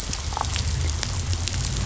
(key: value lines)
label: anthrophony, boat engine
recorder: SoundTrap 500